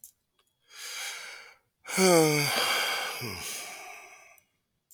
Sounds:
Sigh